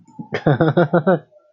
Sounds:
Laughter